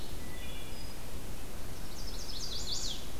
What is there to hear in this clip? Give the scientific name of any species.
Hylocichla mustelina, Setophaga pensylvanica